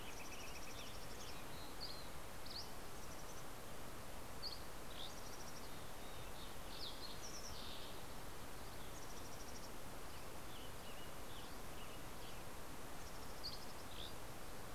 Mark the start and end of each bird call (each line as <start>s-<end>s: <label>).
0.0s-1.4s: Northern Flicker (Colaptes auratus)
0.0s-2.0s: Western Tanager (Piranga ludoviciana)
0.0s-2.1s: Mountain Chickadee (Poecile gambeli)
1.3s-3.2s: Dusky Flycatcher (Empidonax oberholseri)
2.6s-3.9s: Mountain Chickadee (Poecile gambeli)
3.7s-5.5s: Dusky Flycatcher (Empidonax oberholseri)
4.6s-6.6s: Mountain Chickadee (Poecile gambeli)
5.7s-8.4s: Fox Sparrow (Passerella iliaca)
8.7s-10.6s: Mountain Chickadee (Poecile gambeli)
9.1s-12.9s: Western Tanager (Piranga ludoviciana)
12.6s-14.6s: Mountain Chickadee (Poecile gambeli)
13.0s-14.5s: Dusky Flycatcher (Empidonax oberholseri)